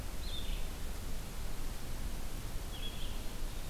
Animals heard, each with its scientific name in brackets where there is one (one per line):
Black-capped Chickadee (Poecile atricapillus)
Red-eyed Vireo (Vireo olivaceus)